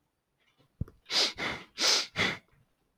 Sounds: Sniff